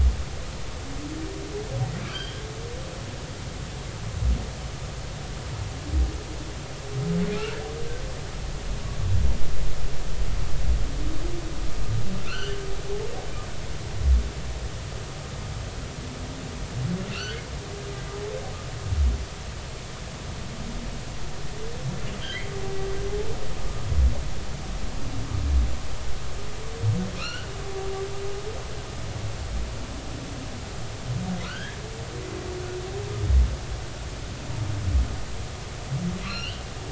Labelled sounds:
2.1	2.4	humpback whale, 2.9 to 3.3 kHz
12.2	12.6	humpback whale, 1.3 to 3.2 kHz
17.1	17.4	humpback whale, 1.3 to 3.1 kHz
18.1	18.4	humpback whale, 4.2 to 4.6 kHz
22.2	22.5	humpback whale, 2.8 to 3.4 kHz
27.1	27.5	humpback whale, 1.2 to 5.8 kHz
31.4	31.8	humpback whale, 1.2 to 3.4 kHz
36.2	36.6	humpback whale, 1.3 to 4.4 kHz

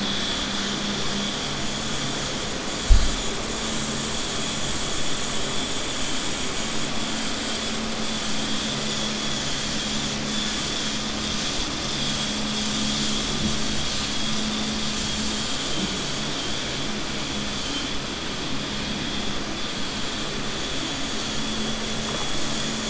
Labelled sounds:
15.2	15.9	vessel noise, 2.3 to 4.6 kHz

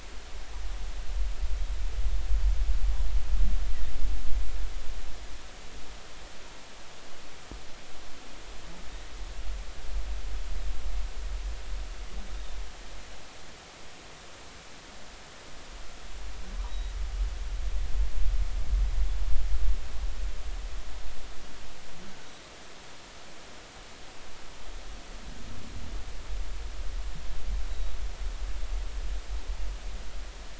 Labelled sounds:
16.7	16.9	humpback whale, 3.7 to 3.9 kHz
27.7	27.9	humpback whale, 3.7 to 4.0 kHz

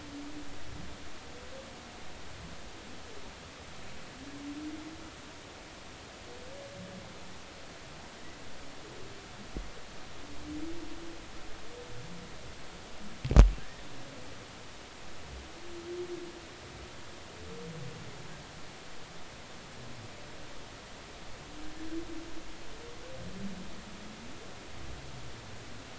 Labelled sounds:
13.6	13.8	humpback whale, 1.5 to 1.9 kHz

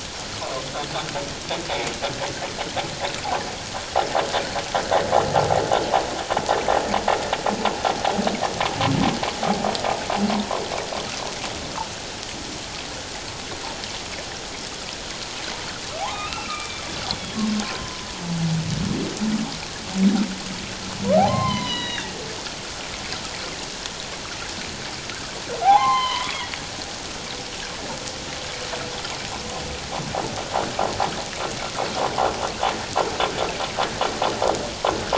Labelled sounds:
16.0	16.8	humpback whale, 0.78 to 3.8 kHz
17.6	18.1	humpback whale, 0.97 to 1.1 kHz
21.2	22.1	humpback whale, 0.78 to 4.2 kHz
25.6	26.5	humpback whale, 0.78 to 4.2 kHz

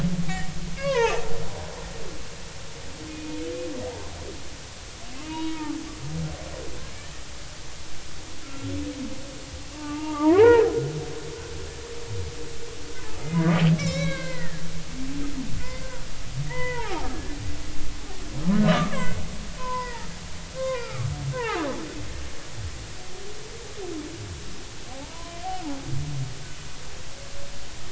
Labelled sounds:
0.3	1.2	humpback whale, 0.80 to 2.3 kHz
3.1	3.4	humpback whale, 2.4 to 2.5 kHz
5.1	5.8	humpback whale, 0.83 to 3.9 kHz
8.4	8.7	humpback whale, 1.3 to 1.4 kHz
9.7	10.7	humpback whale, 0.80 to 2.5 kHz
13.2	14.6	humpback whale, 0.96 to 5.8 kHz
15.6	17.4	humpback whale, 0.80 to 3.1 kHz
18.7	19.2	humpback whale, 0.96 to 8.0 kHz
19.6	21.6	humpback whale, 0.80 to 5.1 kHz
24.9	25.4	humpback whale, 0.80 to 1.1 kHz

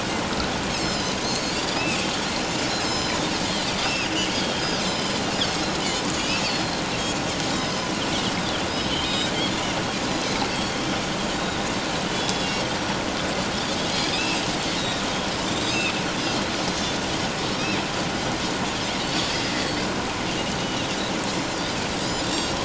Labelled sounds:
0.7	2.0	Pacific white-sided dolphin, 3.4 to 7.7 kHz
2.8	3.2	Pacific white-sided dolphin, 3.9 to 7.4 kHz
4.3	6.8	Pacific white-sided dolphin, 3.0 to 7.6 kHz
7.5	8.6	Pacific white-sided dolphin, 3.0 to 5.3 kHz
9.0	9.3	Pacific white-sided dolphin, 3.7 to 7.6 kHz
10.5	11.6	Pacific white-sided dolphin, 3.7 to 4.7 kHz
12.1	13.0	Pacific white-sided dolphin, 3.2 to 5.9 kHz
14.1	14.4	Pacific white-sided dolphin, 2.4 to 2.9 kHz
14.8	15.9	Pacific white-sided dolphin, 3.4 to 7.7 kHz
17.5	17.8	Pacific white-sided dolphin, 5.4 to 5.7 kHz
19.0	19.3	Pacific white-sided dolphin, 4.3 to 4.7 kHz
20.6	21.6	Pacific white-sided dolphin, 2.7 to 7.3 kHz
22.0	22.6	Pacific white-sided dolphin, 3.5 to 7.5 kHz

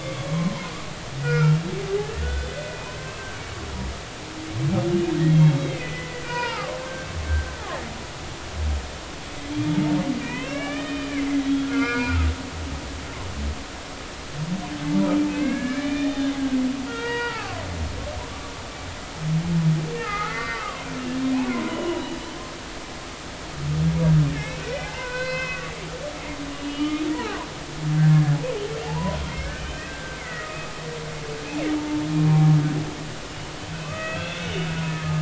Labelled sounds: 0.0	0.7	humpback whale, 0.90 to 2.3 kHz
1.2	1.6	humpback whale, 1.3 to 2.5 kHz
2.2	3.2	humpback whale, 1.4 to 3.6 kHz
5.3	6.8	humpback whale, 0.80 to 4.9 kHz
10.2	12.3	humpback whale, 1.1 to 3.7 kHz
15.3	17.6	humpback whale, 0.83 to 4.8 kHz
20.0	20.9	humpback whale, 0.96 to 2.3 kHz
21.3	22.2	humpback whale, 0.96 to 3.0 kHz
24.3	27.5	humpback whale, 0.80 to 5.7 kHz
28.1	30.6	humpback whale, 0.80 to 3.2 kHz
32.2	32.4	humpback whale, 1.0 to 1.1 kHz
33.7	35.2	humpback whale, 1.1 to 3.7 kHz

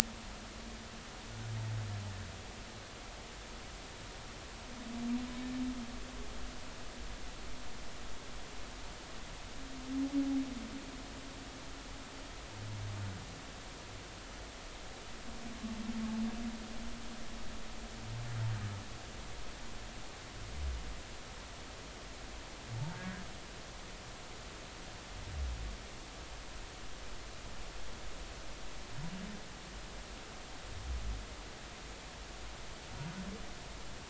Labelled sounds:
22.7	23.2	humpback whale, 0.83 to 1.9 kHz

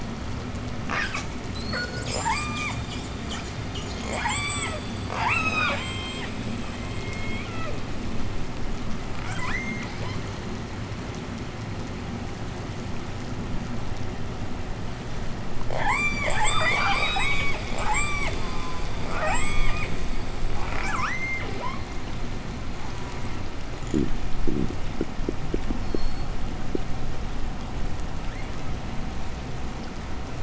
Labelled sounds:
0.7	3.1	killer whale, southern resident, J pod, 0.26 to 8.0 kHz
3.8	7.9	killer whale, southern resident, J pod, 0.24 to 8.0 kHz
9.0	10.4	killer whale, southern resident, J pod, call S02i, 0.42 to 8.0 kHz
15.3	18.5	killer whale, southern resident, J pod, 0.29 to 8.0 kHz
18.3	19.0	killer whale, southern resident, J pod, call S04, 0.17 to 8.0 kHz
19.0	20.0	killer whale, southern resident, J pod, 0.50 to 8.0 kHz
20.4	21.9	killer whale, southern resident, J pod, call S02i, 0.28 to 8.0 kHz
22.6	23.6	killer whale, southern resident, J pod, 0.28 to 8.0 kHz
23.8	24.9	fish, 0 to 0.68 kHz
25.6	26.6	killer whale, southern resident, J pod, 3.0 to 8.0 kHz

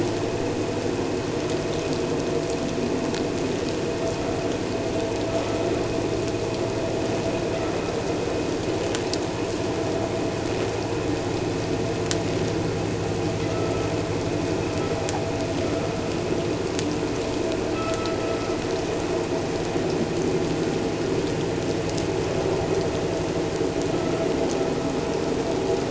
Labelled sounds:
17.7	18.2	vessel noise, 1.2 to 1.4 kHz
23.9	24.3	vessel noise, 1.2 to 1.4 kHz

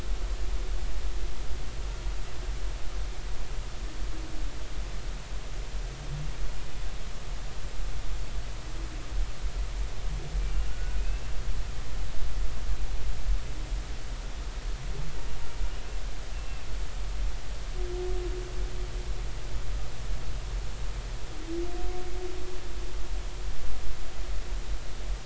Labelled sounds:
10.5	11.2	humpback whale, 1.3 to 2.7 kHz
16.3	16.6	humpback whale, 2.6 to 2.8 kHz

